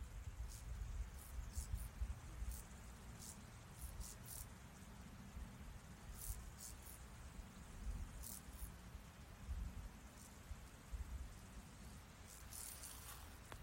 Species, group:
Chorthippus brunneus, Orthoptera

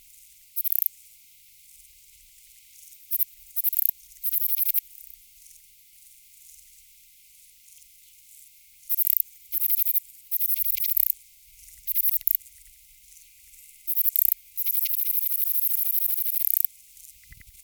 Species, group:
Platycleis affinis, Orthoptera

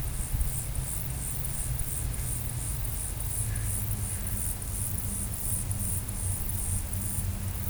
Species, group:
Chorthippus mollis, Orthoptera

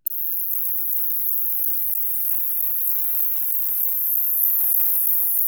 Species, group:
Pycnogaster jugicola, Orthoptera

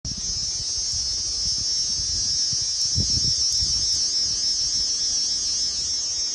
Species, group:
Thopha saccata, Cicadidae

